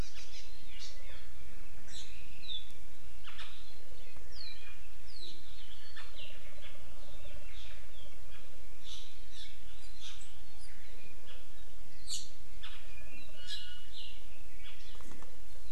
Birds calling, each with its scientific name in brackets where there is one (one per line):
Iiwi (Drepanis coccinea)
Hawaii Amakihi (Chlorodrepanis virens)